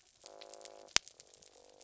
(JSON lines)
{"label": "biophony", "recorder": "SoundTrap 300"}